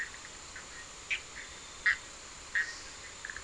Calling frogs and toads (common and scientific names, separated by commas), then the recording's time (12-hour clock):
Bischoff's tree frog (Boana bischoffi)
2:00am